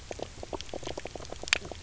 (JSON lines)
{"label": "biophony, knock croak", "recorder": "SoundTrap 300"}